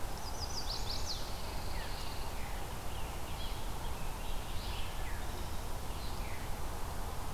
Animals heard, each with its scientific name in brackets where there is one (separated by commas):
Chestnut-sided Warbler (Setophaga pensylvanica), American Robin (Turdus migratorius), Veery (Catharus fuscescens), Pine Warbler (Setophaga pinus)